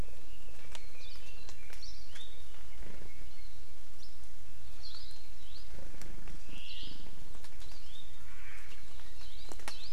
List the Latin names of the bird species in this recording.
Leiothrix lutea, Zosterops japonicus, Chlorodrepanis virens, Myadestes obscurus